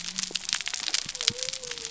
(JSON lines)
{"label": "biophony", "recorder": "SoundTrap 300"}